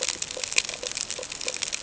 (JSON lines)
{"label": "ambient", "recorder": "HydroMoth"}